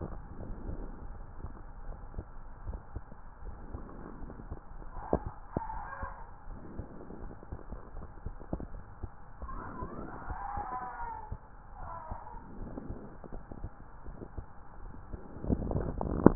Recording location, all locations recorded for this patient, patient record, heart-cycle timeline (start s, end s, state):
pulmonary valve (PV)
pulmonary valve (PV)
#Age: nan
#Sex: Female
#Height: nan
#Weight: nan
#Pregnancy status: True
#Murmur: Unknown
#Murmur locations: nan
#Most audible location: nan
#Systolic murmur timing: nan
#Systolic murmur shape: nan
#Systolic murmur grading: nan
#Systolic murmur pitch: nan
#Systolic murmur quality: nan
#Diastolic murmur timing: nan
#Diastolic murmur shape: nan
#Diastolic murmur grading: nan
#Diastolic murmur pitch: nan
#Diastolic murmur quality: nan
#Outcome: Normal
#Campaign: 2015 screening campaign
0.00	2.46	unannotated
2.46	2.64	diastole
2.64	2.80	S1
2.80	2.92	systole
2.92	3.02	S2
3.02	3.40	diastole
3.40	3.56	S1
3.56	3.71	systole
3.71	3.86	S2
3.86	4.22	diastole
4.22	4.36	S1
4.36	4.46	systole
4.46	4.58	S2
4.58	4.92	diastole
4.92	5.07	S1
5.07	5.24	systole
5.24	5.34	S2
5.34	5.70	diastole
5.70	5.84	S1
5.84	6.00	systole
6.00	6.12	S2
6.12	6.48	diastole
6.48	6.64	S1
6.64	6.76	systole
6.76	6.86	S2
6.86	7.21	diastole
7.21	7.32	S1
7.32	7.50	systole
7.50	7.60	S2
7.60	7.95	diastole
7.95	8.10	S1
8.10	8.24	systole
8.24	8.34	S2
8.34	8.52	diastole
8.52	16.35	unannotated